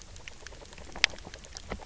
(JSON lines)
{"label": "biophony, grazing", "recorder": "SoundTrap 300"}